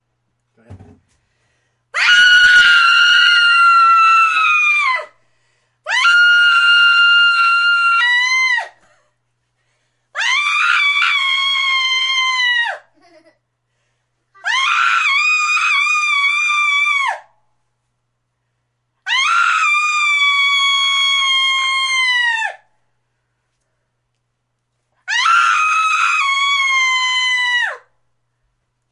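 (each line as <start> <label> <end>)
1.7 Giggles and sudden screams express excitement, surprise, or playfulness. 27.9
2.0 A woman screams loudly. 5.1
5.9 A woman screams loudly. 8.7
10.2 A woman screams loudly. 12.8
14.5 A woman screams loudly. 17.2
19.1 A woman screams loudly. 22.6
25.1 A woman screams loudly. 27.9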